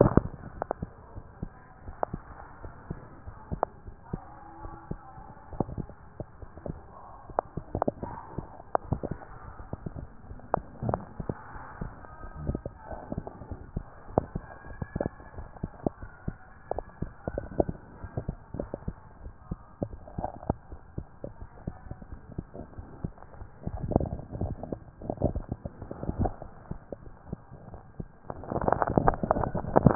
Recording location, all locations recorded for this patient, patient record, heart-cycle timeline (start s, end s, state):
tricuspid valve (TV)
pulmonary valve (PV)+tricuspid valve (TV)+mitral valve (MV)
#Age: Child
#Sex: Female
#Height: 101.0 cm
#Weight: 17.4 kg
#Pregnancy status: False
#Murmur: Absent
#Murmur locations: nan
#Most audible location: nan
#Systolic murmur timing: nan
#Systolic murmur shape: nan
#Systolic murmur grading: nan
#Systolic murmur pitch: nan
#Systolic murmur quality: nan
#Diastolic murmur timing: nan
#Diastolic murmur shape: nan
#Diastolic murmur grading: nan
#Diastolic murmur pitch: nan
#Diastolic murmur quality: nan
#Outcome: Normal
#Campaign: 2014 screening campaign
0.00	0.44	unannotated
0.44	0.54	diastole
0.54	0.66	S1
0.66	0.80	systole
0.80	0.90	S2
0.90	1.16	diastole
1.16	1.26	S1
1.26	1.42	systole
1.42	1.50	S2
1.50	1.84	diastole
1.84	1.96	S1
1.96	2.12	systole
2.12	2.22	S2
2.22	2.62	diastole
2.62	2.74	S1
2.74	2.88	systole
2.88	2.98	S2
2.98	3.26	diastole
3.26	3.36	S1
3.36	3.50	systole
3.50	3.62	S2
3.62	3.86	diastole
3.86	3.96	S1
3.96	4.12	systole
4.12	4.22	S2
4.22	4.56	diastole
4.56	4.70	S1
4.70	4.87	systole
4.87	4.98	S2
4.98	5.34	diastole
5.34	29.95	unannotated